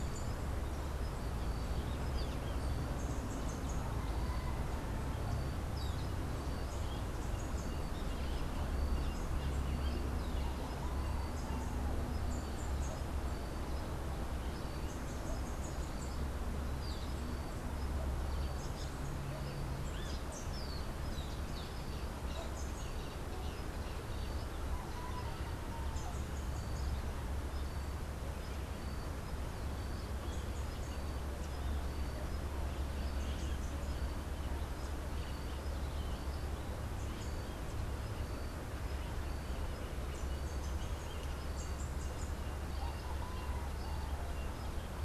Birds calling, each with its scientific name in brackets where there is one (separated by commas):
Social Flycatcher (Myiozetetes similis), Rufous-capped Warbler (Basileuterus rufifrons)